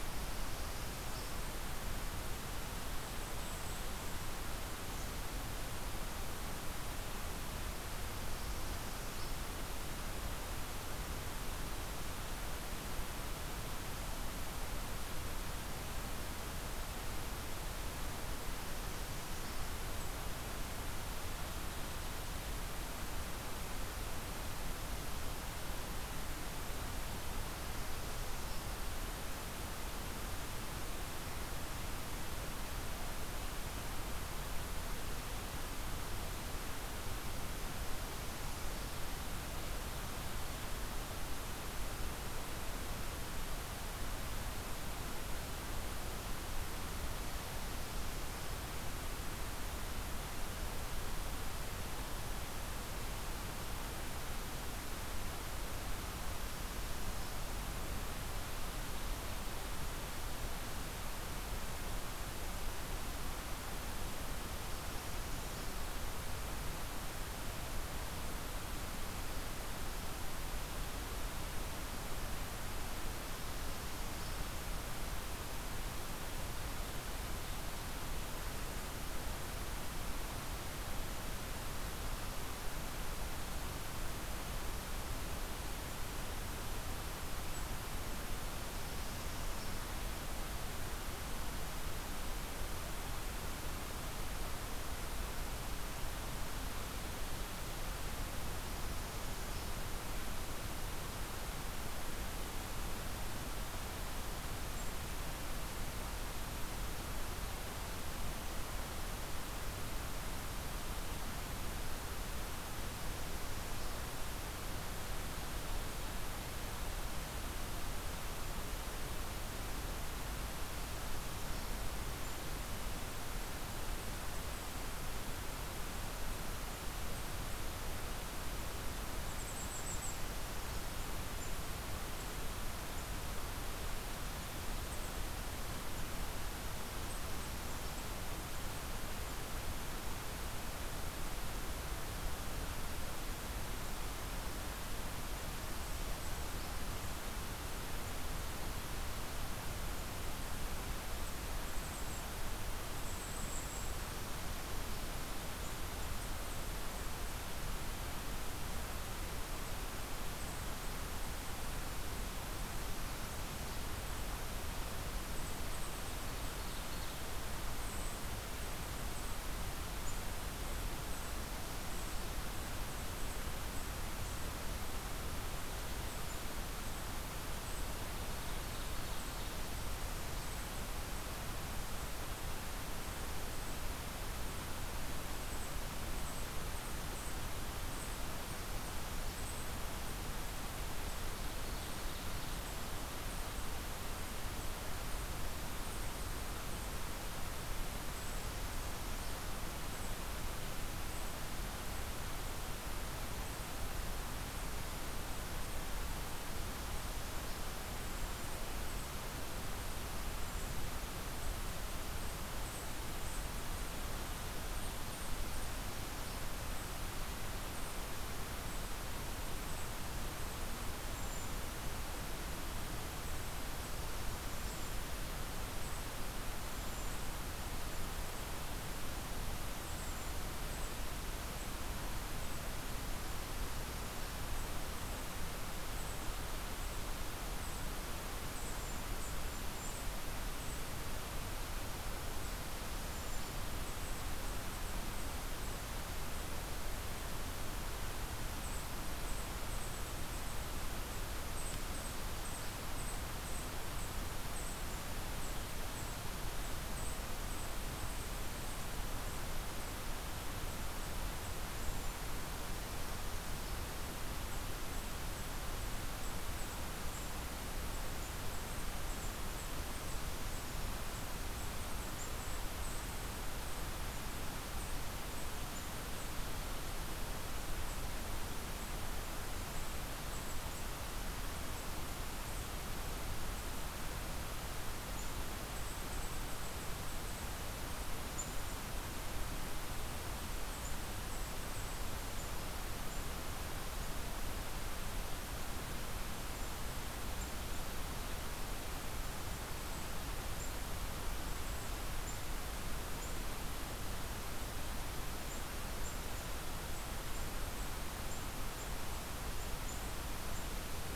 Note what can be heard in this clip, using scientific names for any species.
Setophaga americana, Regulus satrapa, Bombycilla cedrorum